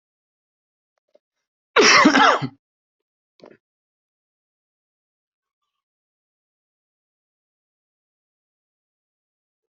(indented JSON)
{
  "expert_labels": [
    {
      "quality": "good",
      "cough_type": "dry",
      "dyspnea": false,
      "wheezing": false,
      "stridor": false,
      "choking": false,
      "congestion": false,
      "nothing": true,
      "diagnosis": "healthy cough",
      "severity": "pseudocough/healthy cough"
    }
  ],
  "age": 40,
  "gender": "male",
  "respiratory_condition": true,
  "fever_muscle_pain": false,
  "status": "healthy"
}